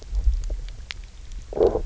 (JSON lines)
{"label": "biophony", "recorder": "SoundTrap 300"}